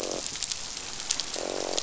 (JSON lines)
{"label": "biophony, croak", "recorder": "SoundTrap 500"}